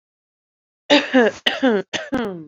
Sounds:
Throat clearing